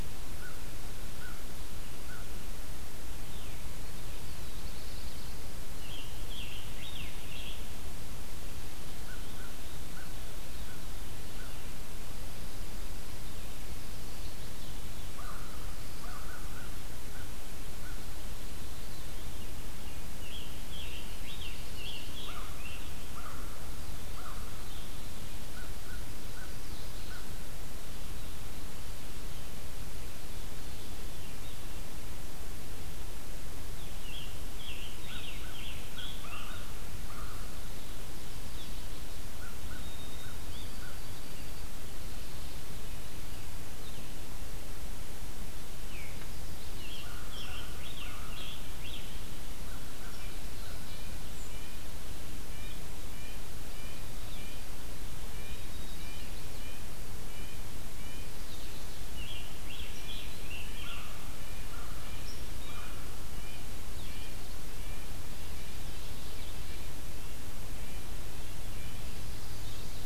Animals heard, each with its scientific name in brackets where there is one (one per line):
American Crow (Corvus brachyrhynchos)
Veery (Catharus fuscescens)
Black-throated Blue Warbler (Setophaga caerulescens)
Red-breasted Nuthatch (Sitta canadensis)
Chestnut-sided Warbler (Setophaga pensylvanica)
Scarlet Tanager (Piranga olivacea)
White-throated Sparrow (Zonotrichia albicollis)